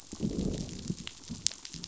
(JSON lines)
{"label": "biophony, growl", "recorder": "SoundTrap 500"}